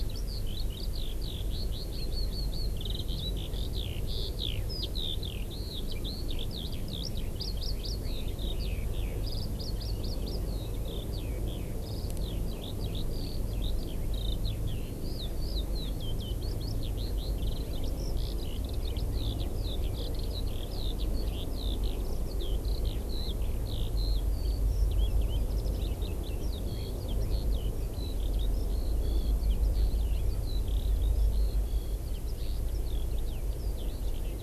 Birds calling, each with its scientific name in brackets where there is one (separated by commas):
Eurasian Skylark (Alauda arvensis)